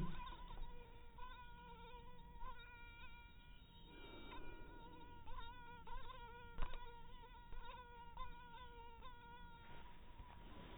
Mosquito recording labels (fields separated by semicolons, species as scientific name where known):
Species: mosquito; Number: one; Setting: cup